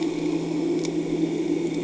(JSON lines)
{"label": "anthrophony, boat engine", "recorder": "HydroMoth"}